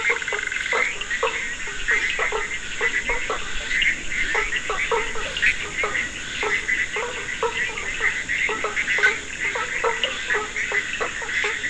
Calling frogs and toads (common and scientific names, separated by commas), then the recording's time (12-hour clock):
Scinax perereca
3:30am